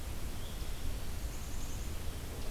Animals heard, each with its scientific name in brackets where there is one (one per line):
Black-capped Chickadee (Poecile atricapillus)